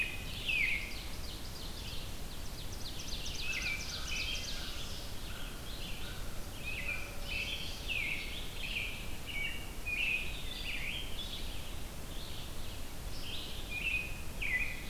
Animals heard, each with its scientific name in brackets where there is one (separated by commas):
Ovenbird (Seiurus aurocapilla), American Robin (Turdus migratorius), American Crow (Corvus brachyrhynchos)